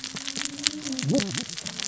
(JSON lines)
{"label": "biophony, cascading saw", "recorder": "SoundTrap 600 or HydroMoth"}